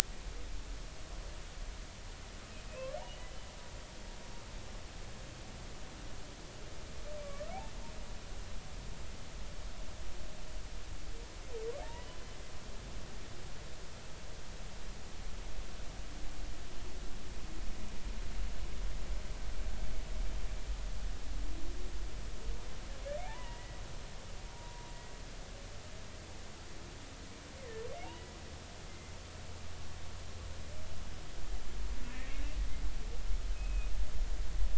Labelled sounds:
3.0	3.3	humpback whale, 2.8 to 3.0 kHz
7.2	7.5	humpback whale, 1.1 to 1.3 kHz
11.8	12.2	humpback whale, 0.80 to 3.0 kHz
23.2	23.8	humpback whale, 0.80 to 2.0 kHz
24.5	24.9	humpback whale, 0.93 to 0.99 kHz
27.6	28.3	humpback whale, 1.7 to 3.0 kHz
28.9	29.1	humpback whale, 2.0 to 2.1 kHz
32.1	32.4	humpback whale, 1.7 to 2.4 kHz
33.5	33.9	humpback whale, 2.4 to 2.6 kHz

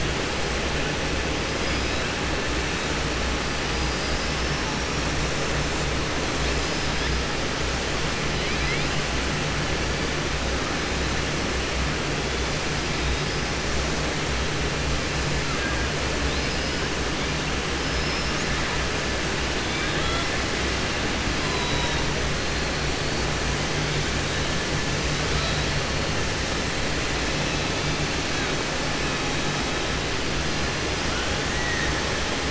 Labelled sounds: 17.8	18.5	killer whale, southern resident, 4.2 to 6.9 kHz
21.4	22.0	killer whale, southern resident, 2.9 to 5.0 kHz

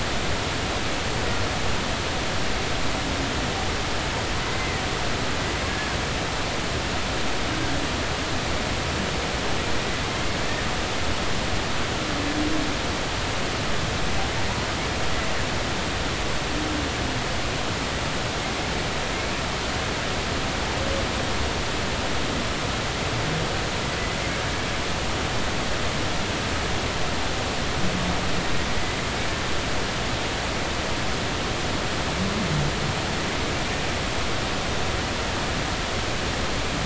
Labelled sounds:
4.5	4.8	humpback whale, 1.8 to 2.1 kHz

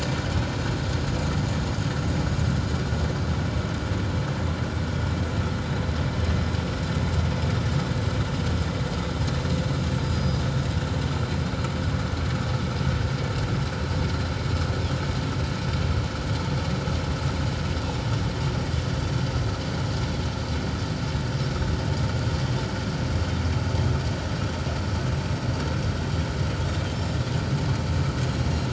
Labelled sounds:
10.0	10.4	Pacific white-sided dolphin, 4.8 to 5.0 kHz
21.4	21.7	Pacific white-sided dolphin, 5.2 to 5.7 kHz

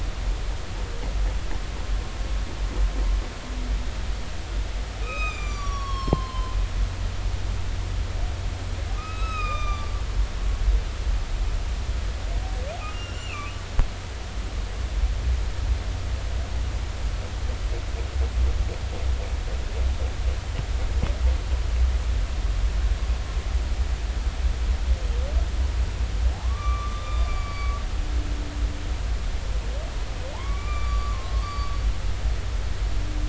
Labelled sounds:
5.0	6.6	humpback whale, 0.93 to 7.3 kHz
8.9	9.9	humpback whale, 1.1 to 6.1 kHz
12.9	13.5	humpback whale, 2.3 to 7.3 kHz
26.3	27.8	humpback whale, 0.80 to 4.7 kHz
30.3	32.7	humpback whale, 0.80 to 7.1 kHz

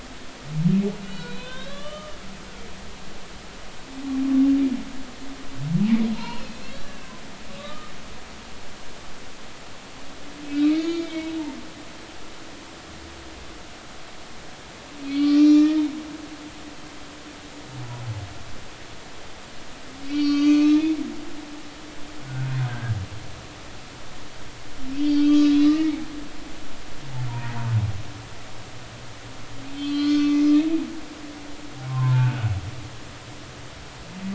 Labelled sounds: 1.1	2.2	humpback whale, 0.96 to 4.5 kHz
6.0	7.1	humpback whale, 0.86 to 4.3 kHz
7.6	7.9	humpback whale, 1.1 to 1.3 kHz
10.4	11.4	humpback whale, 2.1 to 6.8 kHz
15.0	15.8	humpback whale, 1.1 to 6.1 kHz
20.0	21.0	humpback whale, 1.1 to 6.7 kHz
22.2	23.0	humpback whale, 1.4 to 1.7 kHz
24.9	26.0	humpback whale, 1.8 to 4.8 kHz
27.3	27.5	humpback whale, 0.90 to 1.1 kHz
29.7	30.4	humpback whale, 1.1 to 4.5 kHz
31.9	32.5	humpback whale, 0.83 to 2.6 kHz

